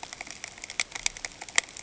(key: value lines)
label: ambient
recorder: HydroMoth